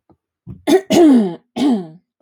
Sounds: Throat clearing